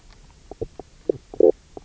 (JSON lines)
{"label": "biophony, knock croak", "recorder": "SoundTrap 300"}